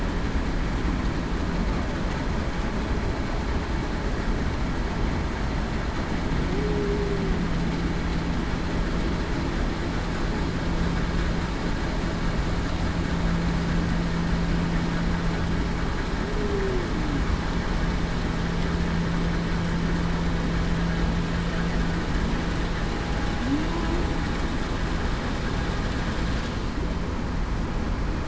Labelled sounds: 6.5	7.1	humpback whale, 0.35 to 0.49 kHz
16.4	16.9	humpback whale, 0.33 to 0.45 kHz

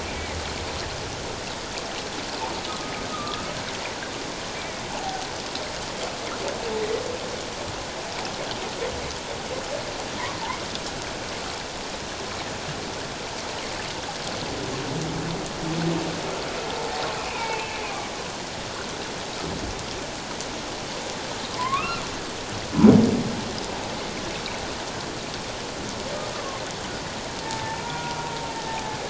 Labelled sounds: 0.1	0.4	humpback whale, 2.0 to 2.3 kHz
2.7	3.4	humpback whale, 1.1 to 1.4 kHz
4.5	5.3	humpback whale, 0.78 to 2.4 kHz
17.2	17.8	humpback whale, 0.84 to 2.8 kHz
21.5	22.0	humpback whale, 0.94 to 2.8 kHz
26.3	28.2	humpback whale, 0.84 to 1.5 kHz

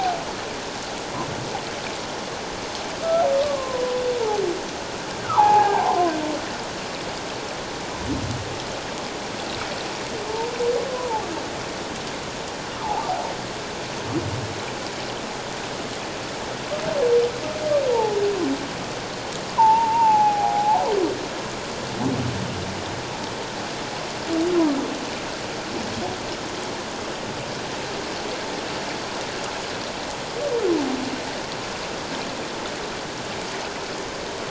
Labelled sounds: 3.0	3.8	humpback whale, 0.94 to 1.4 kHz
5.2	6.1	humpback whale, 0.78 to 2.6 kHz
10.3	10.5	humpback whale, 0.84 to 1.0 kHz
10.9	11.2	humpback whale, 0.78 to 1.1 kHz
17.9	18.2	humpback whale, 0.81 to 1.0 kHz
19.5	20.9	humpback whale, 0.78 to 2.8 kHz

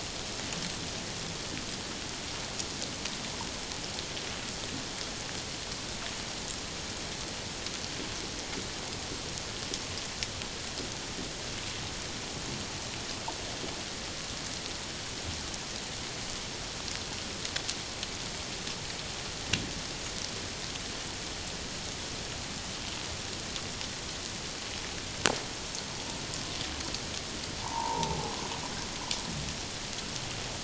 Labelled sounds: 27.6	28.2	humpback whale, 0.78 to 1.1 kHz

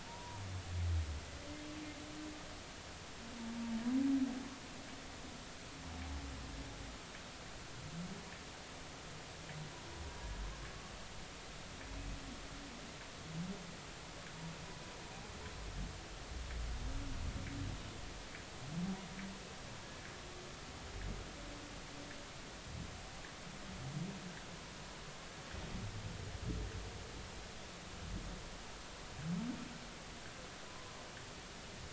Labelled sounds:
0.0	0.4	humpback whale, 0.83 to 1.0 kHz
30.7	30.9	humpback whale, 0.96 to 1.1 kHz

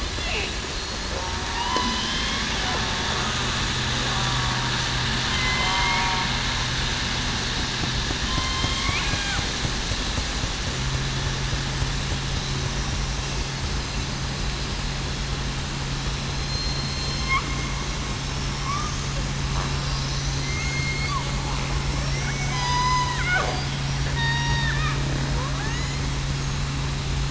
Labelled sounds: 1.5	2.4	killer whale, southern resident, 0.89 to 2.2 kHz
5.3	6.0	killer whale, southern resident, 2.0 to 3.3 kHz
8.2	9.4	killer whale, southern resident, 0.98 to 3.3 kHz
16.3	17.3	killer whale, southern resident, 4.0 to 4.3 kHz
20.4	21.1	killer whale, southern resident, 2.0 to 4.5 kHz
22.2	22.6	killer whale, southern resident, 2.2 to 2.4 kHz
23.1	23.4	killer whale, southern resident, 1.3 to 2.0 kHz
24.1	24.9	killer whale, southern resident, 0.89 to 5.6 kHz
25.6	26.0	killer whale, southern resident, 1.6 to 2.1 kHz

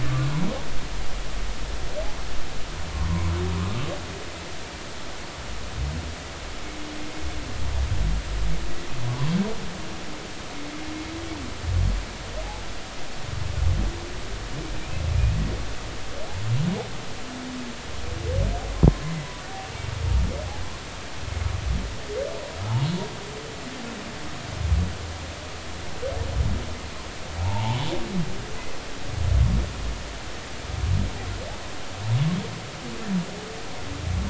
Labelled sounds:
9.1	9.3	humpback whale, 0.96 to 1.2 kHz
14.8	15.0	humpback whale, 2.3 to 2.7 kHz
19.0	19.3	humpback whale, 2.0 to 2.1 kHz
27.4	27.9	humpback whale, 0.80 to 1.1 kHz

